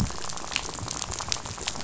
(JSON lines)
{"label": "biophony, rattle", "recorder": "SoundTrap 500"}